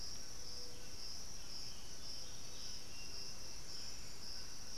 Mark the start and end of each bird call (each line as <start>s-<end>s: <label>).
0.0s-4.8s: Striped Cuckoo (Tapera naevia)
0.0s-4.8s: White-throated Toucan (Ramphastos tucanus)
1.3s-3.1s: Buff-throated Saltator (Saltator maximus)